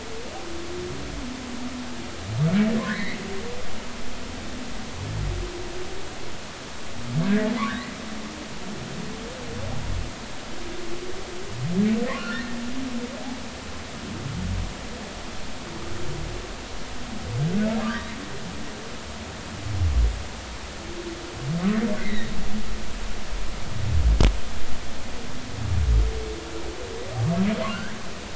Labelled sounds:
2.8	3.2	humpback whale, 1.4 to 2.3 kHz
7.7	8.0	humpback whale, 1.4 to 2.0 kHz
12.2	12.6	humpback whale, 1.3 to 1.9 kHz
17.8	18.2	humpback whale, 1.0 to 1.9 kHz
22.0	22.3	humpback whale, 1.8 to 3.9 kHz
27.7	28.0	humpback whale, 1.3 to 1.7 kHz

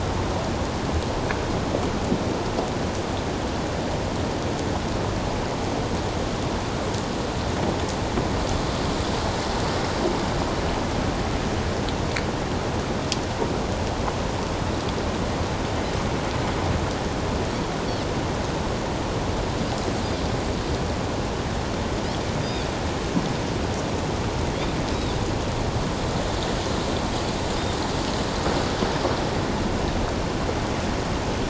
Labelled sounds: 22.4	22.7	Pacific white-sided dolphin, 3.3 to 3.8 kHz
24.9	25.2	Pacific white-sided dolphin, 3.4 to 3.9 kHz

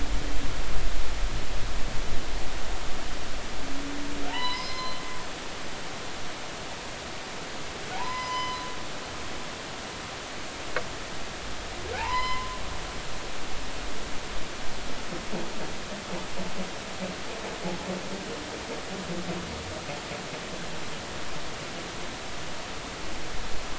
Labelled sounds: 4.3	5.0	humpback whale, 0.86 to 5.2 kHz
7.9	8.6	humpback whale, 0.80 to 6.1 kHz
11.9	13.4	humpback whale, 0.80 to 5.2 kHz

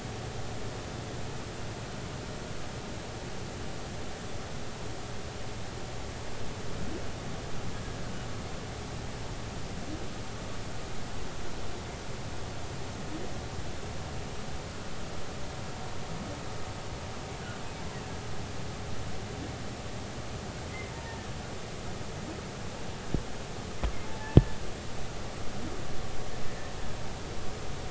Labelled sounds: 20.9	21.2	humpback whale, 0.86 to 0.96 kHz
24.0	24.4	humpback whale, 0.80 to 0.90 kHz

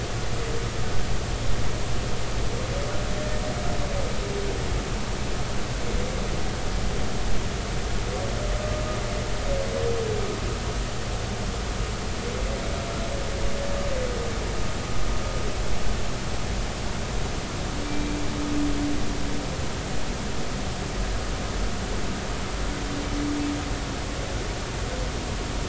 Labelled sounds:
3.2	3.4	humpback whale, 1.7 to 1.9 kHz
8.5	8.8	humpback whale, 1.2 to 1.3 kHz
17.8	18.2	humpback whale, 2.3 to 2.4 kHz

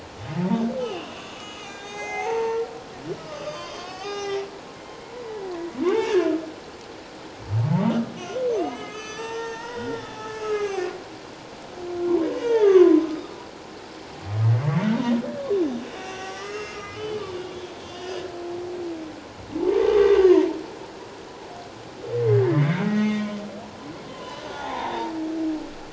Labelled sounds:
0.4	2.7	humpback whale, 0.78 to 8.0 kHz
3.2	4.5	humpback whale, 0.78 to 6.6 kHz
5.1	5.3	humpback whale, 0.91 to 1.0 kHz
5.9	6.2	humpback whale, 0.81 to 1.8 kHz
8.1	10.9	humpback whale, 0.88 to 6.6 kHz
12.3	13.1	humpback whale, 0.84 to 3.8 kHz
16.0	17.2	humpback whale, 1.1 to 3.1 kHz
17.8	18.1	humpback whale, 2.8 to 3.3 kHz
19.9	20.5	humpback whale, 1.8 to 3.7 kHz
22.5	23.3	humpback whale, 1.9 to 3.7 kHz
24.1	25.1	humpback whale, 0.78 to 3.8 kHz

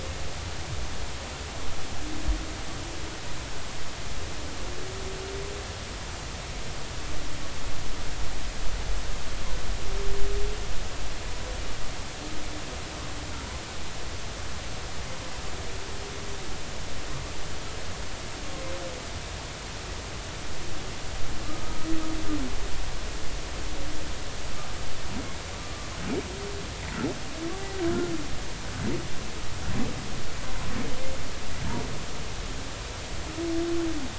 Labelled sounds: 25.6	25.9	humpback whale, 1.1 to 1.2 kHz

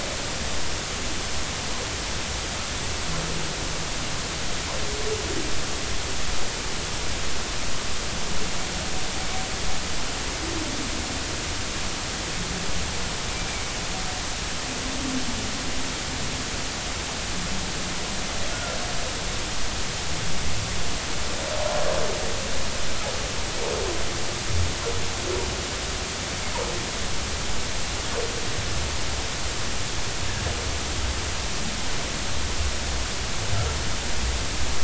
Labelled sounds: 18.5	18.8	humpback whale, 1.3 to 1.5 kHz

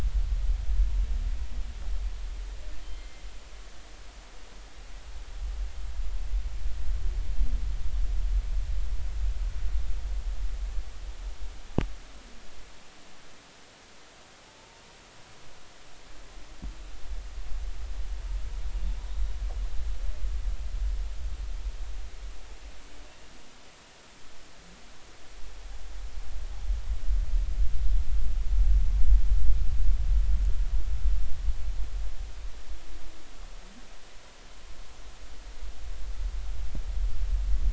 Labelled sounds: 2.9	3.3	humpback whale, 2.0 to 2.1 kHz
14.4	14.8	humpback whale, 0.83 to 0.96 kHz

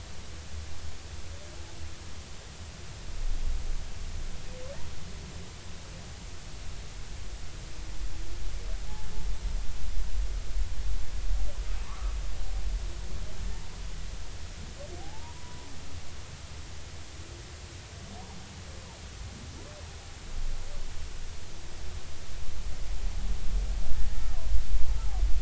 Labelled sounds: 11.8	12.2	humpback whale, 0.83 to 1.4 kHz
15.0	15.7	humpback whale, 0.80 to 1.1 kHz

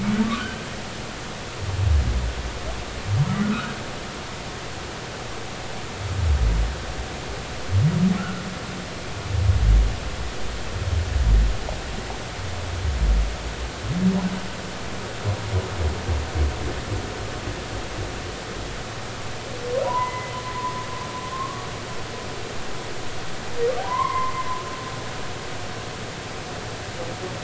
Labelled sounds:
0.3	0.7	humpback whale, 1.4 to 1.6 kHz
3.4	3.7	humpback whale, 1.1 to 1.5 kHz
8.2	8.4	humpback whale, 1.3 to 1.5 kHz
19.8	20.4	humpback whale, 0.86 to 2.1 kHz
21.3	21.7	humpback whale, 1.0 to 1.2 kHz
23.8	24.5	humpback whale, 0.90 to 2.3 kHz

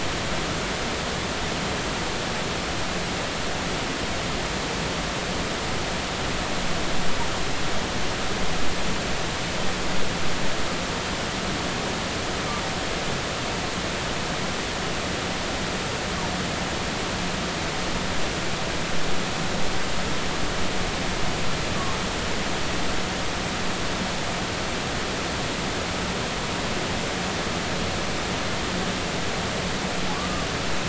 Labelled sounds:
30.1	30.5	humpback whale, 0.99 to 1.2 kHz

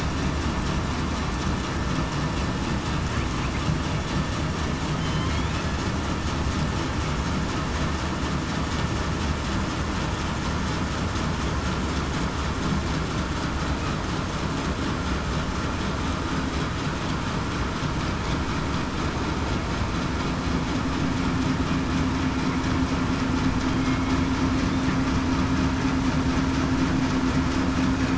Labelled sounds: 23.7	24.1	killer whale, southern resident, 2.1 to 2.2 kHz

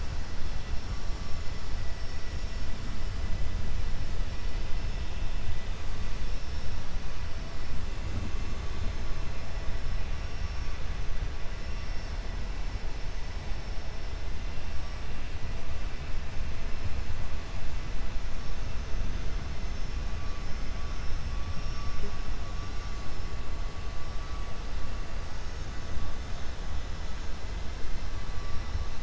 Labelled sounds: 21.5	22.2	vessel noise, 4.6 to 6.4 kHz

